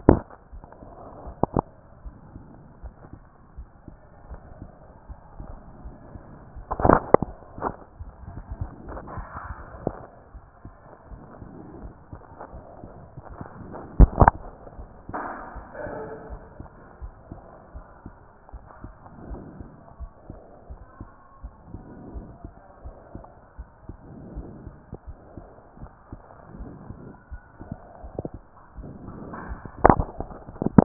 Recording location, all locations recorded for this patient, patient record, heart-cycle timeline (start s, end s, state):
aortic valve (AV)
aortic valve (AV)+pulmonary valve (PV)+tricuspid valve (TV)+mitral valve (MV)
#Age: nan
#Sex: Female
#Height: nan
#Weight: nan
#Pregnancy status: True
#Murmur: Absent
#Murmur locations: nan
#Most audible location: nan
#Systolic murmur timing: nan
#Systolic murmur shape: nan
#Systolic murmur grading: nan
#Systolic murmur pitch: nan
#Systolic murmur quality: nan
#Diastolic murmur timing: nan
#Diastolic murmur shape: nan
#Diastolic murmur grading: nan
#Diastolic murmur pitch: nan
#Diastolic murmur quality: nan
#Outcome: Normal
#Campaign: 2014 screening campaign
0.00	16.30	unannotated
16.30	16.40	S1
16.40	16.58	systole
16.58	16.68	S2
16.68	17.02	diastole
17.02	17.14	S1
17.14	17.30	systole
17.30	17.40	S2
17.40	17.74	diastole
17.74	17.86	S1
17.86	18.06	systole
18.06	18.14	S2
18.14	18.54	diastole
18.54	18.64	S1
18.64	18.82	systole
18.82	18.92	S2
18.92	19.28	diastole
19.28	19.42	S1
19.42	19.58	systole
19.58	19.68	S2
19.68	20.00	diastole
20.00	20.12	S1
20.12	20.28	systole
20.28	20.40	S2
20.40	20.70	diastole
20.70	20.80	S1
20.80	21.00	systole
21.00	21.10	S2
21.10	21.42	diastole
21.42	21.54	S1
21.54	21.72	systole
21.72	21.82	S2
21.82	22.14	diastole
22.14	22.26	S1
22.26	22.44	systole
22.44	22.52	S2
22.52	22.84	diastole
22.84	22.96	S1
22.96	23.14	systole
23.14	23.24	S2
23.24	23.60	diastole
23.60	23.68	S1
23.68	23.88	systole
23.88	23.96	S2
23.96	24.34	diastole
24.34	24.48	S1
24.48	24.64	systole
24.64	24.74	S2
24.74	25.08	diastole
25.08	25.18	S1
25.18	25.36	systole
25.36	25.46	S2
25.46	25.80	diastole
25.80	25.90	S1
25.90	26.12	systole
26.12	26.22	S2
26.22	26.58	diastole
26.58	26.70	S1
26.70	26.88	systole
26.88	26.96	S2
26.96	27.32	diastole
27.32	30.85	unannotated